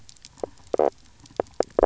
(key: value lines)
label: biophony, knock croak
recorder: SoundTrap 300